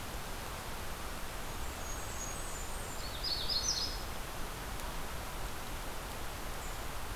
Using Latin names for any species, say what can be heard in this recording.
Setophaga fusca, Setophaga magnolia